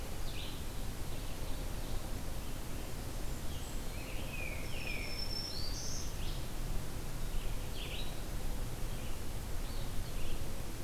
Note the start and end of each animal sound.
[0.00, 10.84] Red-eyed Vireo (Vireo olivaceus)
[4.27, 5.31] Tufted Titmouse (Baeolophus bicolor)
[4.49, 6.39] Black-throated Green Warbler (Setophaga virens)

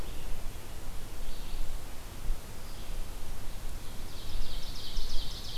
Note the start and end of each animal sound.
[0.00, 5.57] Red-eyed Vireo (Vireo olivaceus)
[3.62, 5.57] Ovenbird (Seiurus aurocapilla)

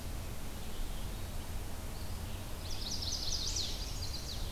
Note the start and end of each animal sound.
[0.00, 4.51] Red-eyed Vireo (Vireo olivaceus)
[2.44, 4.50] Chestnut-sided Warbler (Setophaga pensylvanica)

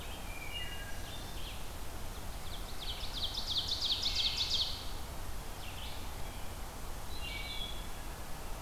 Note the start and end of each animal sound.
[0.00, 8.62] Red-eyed Vireo (Vireo olivaceus)
[0.06, 1.01] Wood Thrush (Hylocichla mustelina)
[2.12, 4.85] Ovenbird (Seiurus aurocapilla)
[3.85, 4.75] Wood Thrush (Hylocichla mustelina)
[7.01, 7.90] Wood Thrush (Hylocichla mustelina)

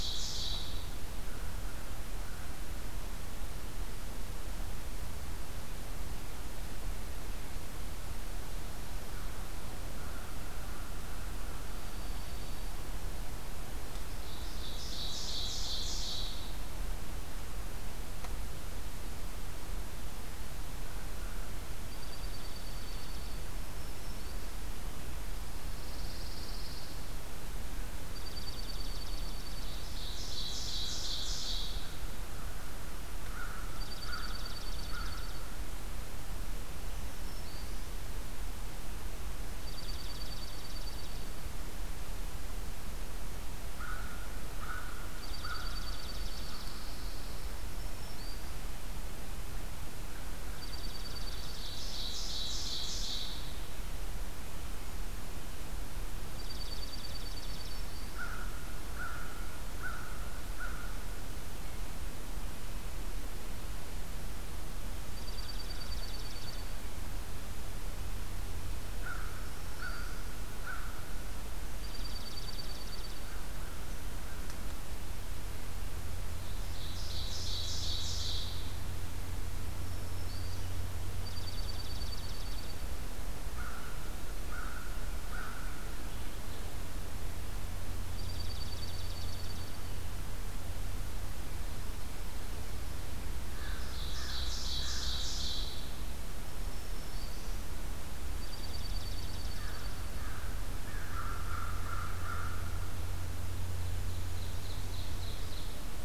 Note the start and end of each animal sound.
[0.00, 1.14] Ovenbird (Seiurus aurocapilla)
[8.80, 12.23] American Crow (Corvus brachyrhynchos)
[11.47, 12.85] Dark-eyed Junco (Junco hyemalis)
[14.05, 16.61] Ovenbird (Seiurus aurocapilla)
[21.64, 23.79] Dark-eyed Junco (Junco hyemalis)
[23.42, 24.77] Black-throated Green Warbler (Setophaga virens)
[25.25, 27.06] Chipping Sparrow (Spizella passerina)
[27.91, 29.95] Dark-eyed Junco (Junco hyemalis)
[29.74, 32.03] Ovenbird (Seiurus aurocapilla)
[32.84, 36.65] American Crow (Corvus brachyrhynchos)
[33.62, 35.48] Dark-eyed Junco (Junco hyemalis)
[36.58, 37.98] Black-throated Green Warbler (Setophaga virens)
[39.34, 41.52] Dark-eyed Junco (Junco hyemalis)
[43.66, 47.40] American Crow (Corvus brachyrhynchos)
[45.04, 47.19] Dark-eyed Junco (Junco hyemalis)
[47.16, 48.73] Black-throated Green Warbler (Setophaga virens)
[50.43, 51.95] Dark-eyed Junco (Junco hyemalis)
[51.46, 53.75] Ovenbird (Seiurus aurocapilla)
[56.16, 57.84] Dark-eyed Junco (Junco hyemalis)
[57.96, 61.41] American Crow (Corvus brachyrhynchos)
[64.90, 66.92] Dark-eyed Junco (Junco hyemalis)
[68.54, 70.48] Black-throated Green Warbler (Setophaga virens)
[68.78, 74.63] American Crow (Corvus brachyrhynchos)
[71.60, 73.46] Dark-eyed Junco (Junco hyemalis)
[76.47, 78.81] Ovenbird (Seiurus aurocapilla)
[79.42, 80.78] Black-throated Green Warbler (Setophaga virens)
[80.78, 83.11] Dark-eyed Junco (Junco hyemalis)
[83.41, 86.66] American Crow (Corvus brachyrhynchos)
[87.93, 90.16] Dark-eyed Junco (Junco hyemalis)
[93.17, 95.89] American Crow (Corvus brachyrhynchos)
[93.36, 96.04] Ovenbird (Seiurus aurocapilla)
[96.19, 97.83] Black-throated Green Warbler (Setophaga virens)
[98.14, 100.55] Dark-eyed Junco (Junco hyemalis)
[99.51, 103.76] American Crow (Corvus brachyrhynchos)
[103.34, 106.05] Ovenbird (Seiurus aurocapilla)

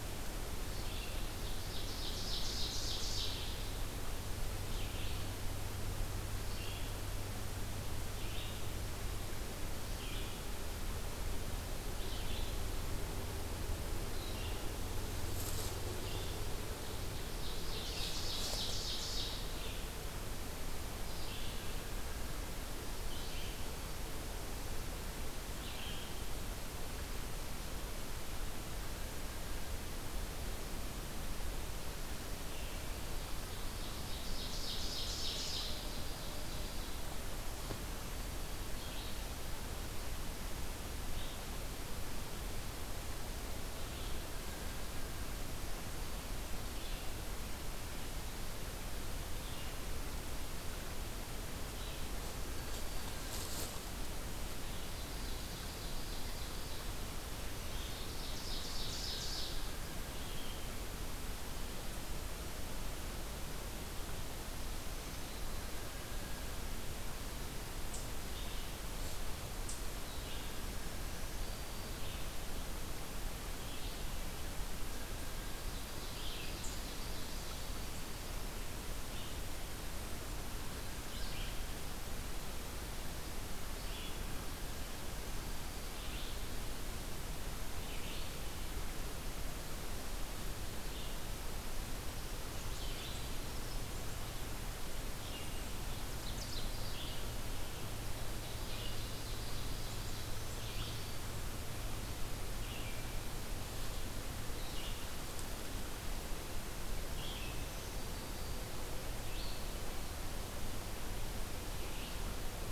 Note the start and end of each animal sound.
[0.00, 26.57] Red-eyed Vireo (Vireo olivaceus)
[0.30, 3.37] Ovenbird (Seiurus aurocapilla)
[16.61, 19.88] Ovenbird (Seiurus aurocapilla)
[33.17, 37.15] Ovenbird (Seiurus aurocapilla)
[38.56, 47.44] Red-eyed Vireo (Vireo olivaceus)
[54.73, 60.31] Ovenbird (Seiurus aurocapilla)
[67.98, 105.10] Red-eyed Vireo (Vireo olivaceus)
[70.75, 72.06] Black-throated Green Warbler (Setophaga virens)
[75.39, 78.00] Ovenbird (Seiurus aurocapilla)
[96.06, 96.91] Ovenbird (Seiurus aurocapilla)
[98.25, 101.13] Ovenbird (Seiurus aurocapilla)
[106.92, 112.71] Red-eyed Vireo (Vireo olivaceus)
[107.32, 108.71] Black-throated Green Warbler (Setophaga virens)

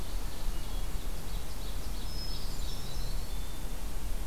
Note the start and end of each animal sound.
[0.55, 2.34] Ovenbird (Seiurus aurocapilla)
[1.96, 3.68] Hermit Thrush (Catharus guttatus)
[2.10, 3.41] Eastern Wood-Pewee (Contopus virens)

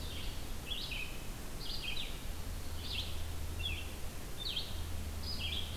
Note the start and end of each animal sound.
[0.00, 5.77] Red-eyed Vireo (Vireo olivaceus)

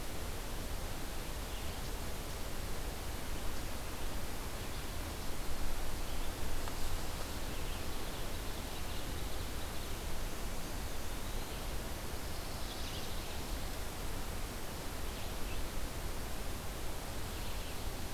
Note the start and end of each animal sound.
[7.22, 9.52] Ovenbird (Seiurus aurocapilla)
[10.51, 11.69] Eastern Wood-Pewee (Contopus virens)
[12.23, 13.15] Chestnut-sided Warbler (Setophaga pensylvanica)

